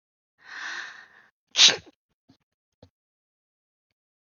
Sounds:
Sneeze